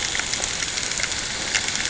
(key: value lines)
label: ambient
recorder: HydroMoth